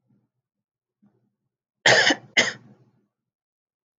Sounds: Cough